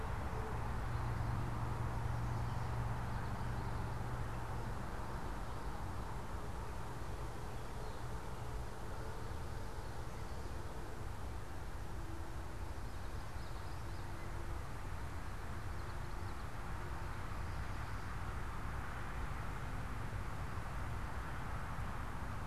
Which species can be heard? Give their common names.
Common Yellowthroat